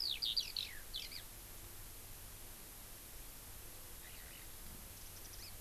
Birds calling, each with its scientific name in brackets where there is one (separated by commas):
Hawaii Amakihi (Chlorodrepanis virens), Eurasian Skylark (Alauda arvensis)